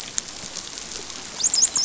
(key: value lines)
label: biophony, dolphin
recorder: SoundTrap 500